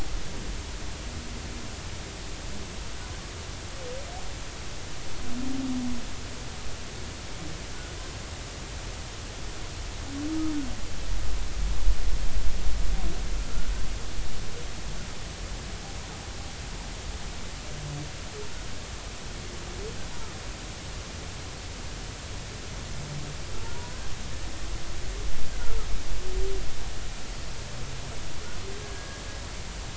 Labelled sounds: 23.7	24.1	humpback whale, 0.93 to 1.7 kHz
25.5	25.8	humpback whale, 1.3 to 1.6 kHz
28.9	29.2	humpback whale, 1.6 to 1.7 kHz

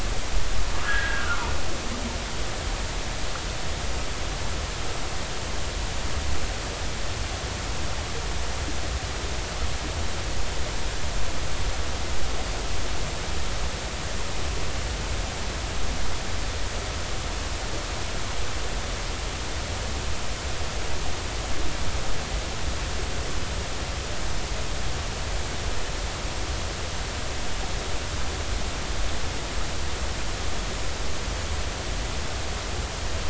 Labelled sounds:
0.8	1.5	humpback whale, 0.86 to 1.8 kHz

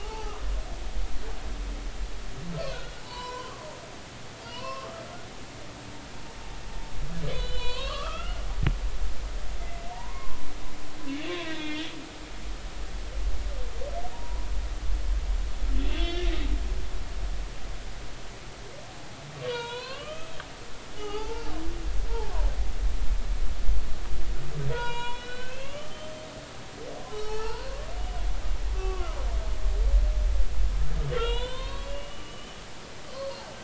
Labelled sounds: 0.0	0.4	humpback whale, 0.80 to 0.96 kHz
3.0	3.9	humpback whale, 0.83 to 5.7 kHz
4.4	5.0	humpback whale, 0.90 to 4.4 kHz
7.3	8.4	humpback whale, 0.93 to 4.4 kHz
9.6	10.4	humpback whale, 0.86 to 2.1 kHz
11.3	11.9	humpback whale, 1.5 to 4.2 kHz
14.1	14.5	humpback whale, 0.90 to 1.0 kHz
15.8	16.3	humpback whale, 2.0 to 4.6 kHz
19.5	20.3	humpback whale, 0.86 to 4.3 kHz
21.0	21.5	humpback whale, 0.80 to 3.0 kHz
22.1	22.3	humpback whale, 0.80 to 0.99 kHz
24.7	26.1	humpback whale, 0.90 to 5.5 kHz
27.1	27.7	humpback whale, 0.80 to 5.7 kHz
28.7	29.1	humpback whale, 1.0 to 2.7 kHz
31.1	32.6	humpback whale, 0.86 to 4.5 kHz
33.1	33.5	humpback whale, 4.1 to 4.4 kHz

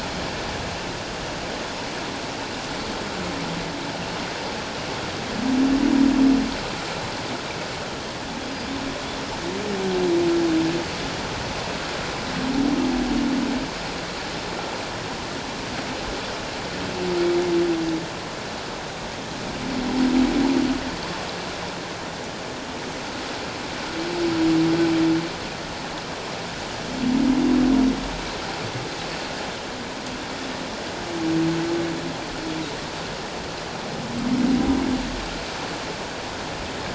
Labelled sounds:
8.4	8.7	humpback whale, 4.8 to 5.0 kHz

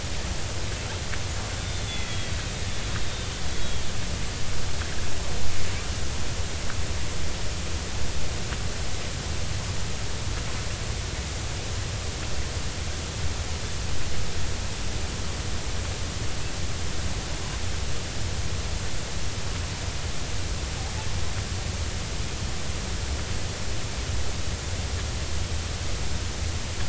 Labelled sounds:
1.6	2.3	killer whale, Bigg's (transient), 2.0 to 3.6 kHz
3.5	3.9	killer whale, Bigg's (transient), 3.2 to 3.4 kHz

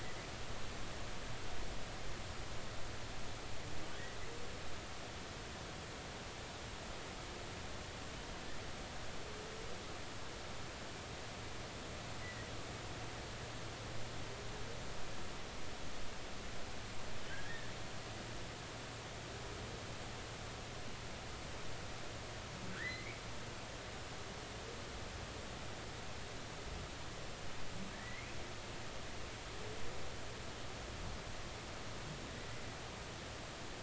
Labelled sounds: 22.7	23.2	humpback whale, 1.3 to 2.5 kHz
27.9	28.4	humpback whale, 1.6 to 2.6 kHz

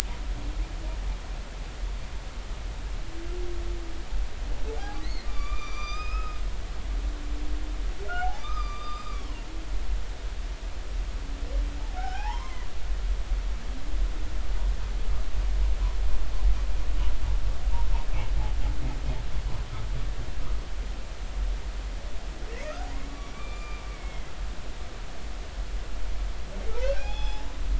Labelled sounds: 4.8	6.4	humpback whale, 0.80 to 6.2 kHz
8.1	9.3	humpback whale, 0.80 to 5.1 kHz
11.8	12.7	humpback whale, 0.80 to 2.3 kHz
23.2	24.3	humpback whale, 1.1 to 3.6 kHz
26.8	27.5	humpback whale, 0.80 to 5.2 kHz

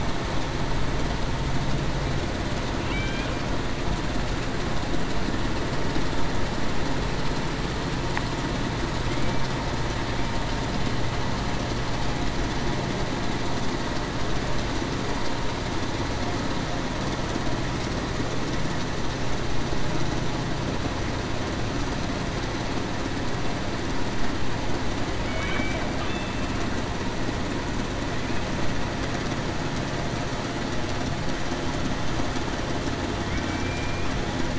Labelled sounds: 2.9	3.3	killer whale, Bigg's (transient), 2.2 to 3.3 kHz
25.2	25.8	killer whale, Bigg's (transient), 2.2 to 2.3 kHz
26.1	26.5	killer whale, Bigg's (transient), 2.5 to 2.7 kHz
33.4	34.1	killer whale, Bigg's (transient), 2.3 to 2.5 kHz

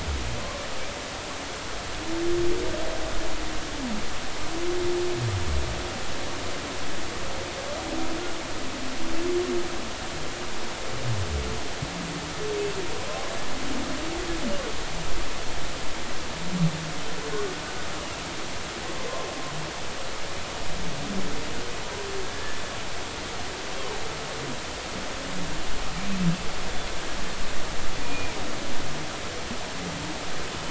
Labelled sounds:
22.3	22.6	humpback whale, 1.6 to 1.8 kHz
28.0	28.3	humpback whale, 2.3 to 2.5 kHz

